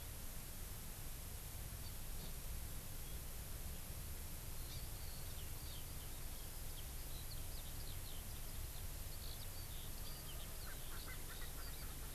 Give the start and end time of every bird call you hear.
4.5s-11.9s: Eurasian Skylark (Alauda arvensis)
10.6s-12.1s: Erckel's Francolin (Pternistis erckelii)

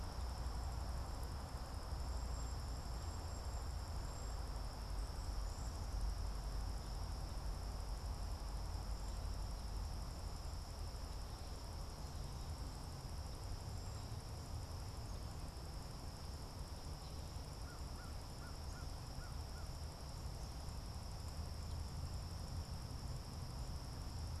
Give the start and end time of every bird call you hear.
0.0s-6.2s: Cedar Waxwing (Bombycilla cedrorum)
13.5s-14.4s: Cedar Waxwing (Bombycilla cedrorum)
17.5s-19.9s: American Crow (Corvus brachyrhynchos)

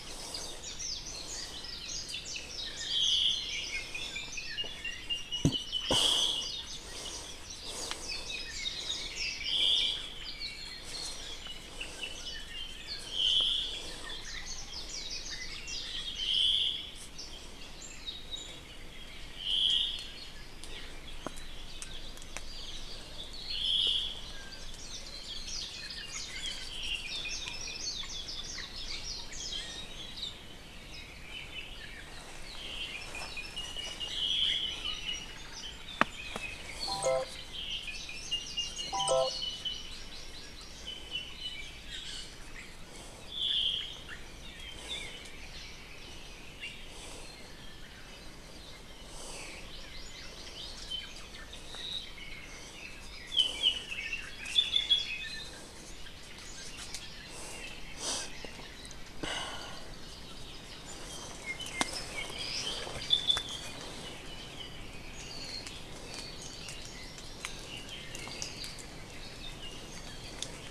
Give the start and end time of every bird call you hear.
0.7s-1.2s: Warbling White-eye (Zosterops japonicus)
1.5s-2.8s: Warbling White-eye (Zosterops japonicus)
2.8s-3.8s: Omao (Myadestes obscurus)
3.6s-6.1s: Apapane (Himatione sanguinea)
5.7s-6.6s: Omao (Myadestes obscurus)
6.1s-9.6s: Warbling White-eye (Zosterops japonicus)
8.0s-9.6s: Apapane (Himatione sanguinea)
9.4s-10.2s: Omao (Myadestes obscurus)
10.2s-13.1s: Apapane (Himatione sanguinea)
13.0s-14.0s: Omao (Myadestes obscurus)
14.2s-15.9s: Warbling White-eye (Zosterops japonicus)
16.1s-17.0s: Omao (Myadestes obscurus)
17.1s-17.4s: Apapane (Himatione sanguinea)
17.7s-18.7s: Apapane (Himatione sanguinea)
19.3s-20.2s: Omao (Myadestes obscurus)
20.6s-20.9s: Apapane (Himatione sanguinea)
23.4s-24.4s: Omao (Myadestes obscurus)
24.7s-26.5s: Warbling White-eye (Zosterops japonicus)
26.6s-27.2s: Omao (Myadestes obscurus)
27.0s-29.7s: Warbling White-eye (Zosterops japonicus)
30.1s-30.5s: Warbling White-eye (Zosterops japonicus)
31.2s-32.3s: Apapane (Himatione sanguinea)
32.5s-33.2s: Omao (Myadestes obscurus)
32.8s-35.8s: Apapane (Himatione sanguinea)
34.0s-34.9s: Omao (Myadestes obscurus)
37.4s-38.0s: Omao (Myadestes obscurus)
37.9s-39.5s: Warbling White-eye (Zosterops japonicus)
38.2s-40.2s: Apapane (Himatione sanguinea)
39.2s-40.8s: Hawaii Amakihi (Chlorodrepanis virens)
40.7s-41.8s: Apapane (Himatione sanguinea)
41.7s-42.4s: Iiwi (Drepanis coccinea)
43.2s-44.1s: Omao (Myadestes obscurus)
43.7s-44.3s: Iiwi (Drepanis coccinea)
44.4s-44.6s: Apapane (Himatione sanguinea)
49.6s-50.6s: Hawaii Amakihi (Chlorodrepanis virens)
51.6s-52.7s: Apapane (Himatione sanguinea)
53.2s-55.7s: Apapane (Himatione sanguinea)
61.3s-63.7s: Apapane (Himatione sanguinea)
62.3s-62.8s: Iiwi (Drepanis coccinea)
64.0s-65.7s: Apapane (Himatione sanguinea)
66.3s-67.6s: Hawaii Amakihi (Chlorodrepanis virens)
67.6s-68.9s: Apapane (Himatione sanguinea)

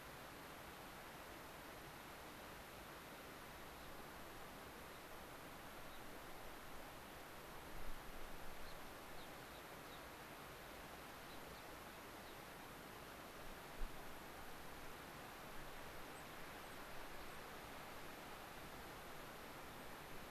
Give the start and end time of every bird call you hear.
3.7s-3.9s: Gray-crowned Rosy-Finch (Leucosticte tephrocotis)
4.9s-5.1s: Gray-crowned Rosy-Finch (Leucosticte tephrocotis)
5.8s-6.0s: Gray-crowned Rosy-Finch (Leucosticte tephrocotis)
8.5s-10.1s: Gray-crowned Rosy-Finch (Leucosticte tephrocotis)
11.1s-12.4s: Gray-crowned Rosy-Finch (Leucosticte tephrocotis)
16.1s-17.4s: unidentified bird
19.7s-19.9s: unidentified bird

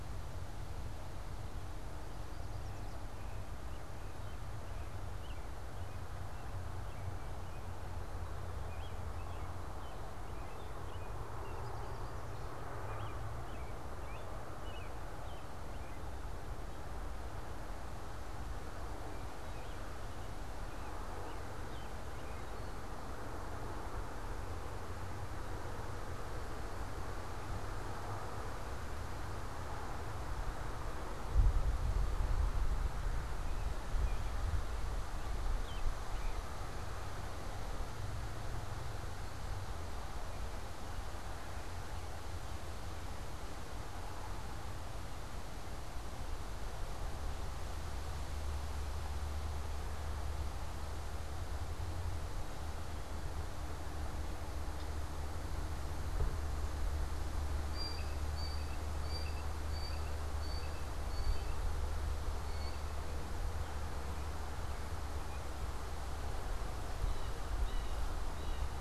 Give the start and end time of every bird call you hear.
0.0s-22.9s: American Robin (Turdus migratorius)
57.5s-68.8s: Blue Jay (Cyanocitta cristata)

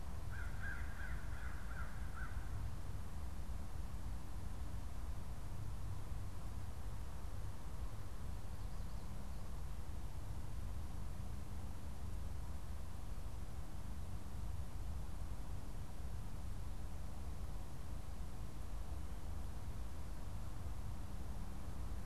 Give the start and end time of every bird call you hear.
0.2s-2.5s: American Crow (Corvus brachyrhynchos)

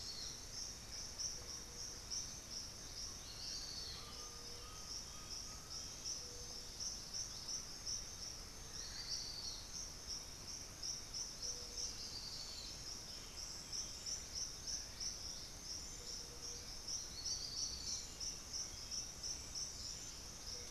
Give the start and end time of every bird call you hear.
3.8s-6.0s: Undulated Tinamou (Crypturellus undulatus)

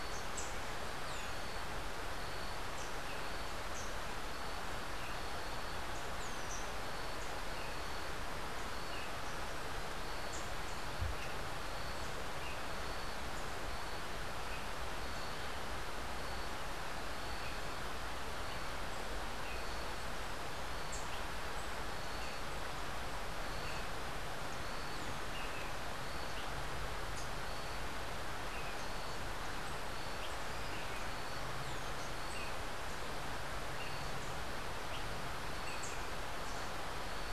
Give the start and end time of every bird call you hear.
0.0s-0.5s: Rufous-tailed Hummingbird (Amazilia tzacatl)
1.0s-1.6s: Rose-throated Becard (Pachyramphus aglaiae)
2.2s-3.1s: Rufous-tailed Hummingbird (Amazilia tzacatl)
3.6s-4.1s: Rufous-tailed Hummingbird (Amazilia tzacatl)
6.1s-6.7s: Rose-throated Becard (Pachyramphus aglaiae)
24.8s-25.3s: Rose-throated Becard (Pachyramphus aglaiae)
31.5s-32.1s: Rose-throated Becard (Pachyramphus aglaiae)

